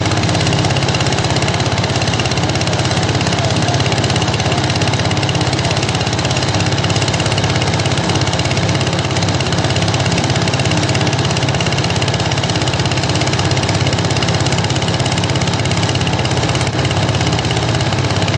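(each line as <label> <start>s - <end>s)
The steady sound of a combustion engine running. 0.0s - 18.4s
Voices in the background. 4.0s - 4.9s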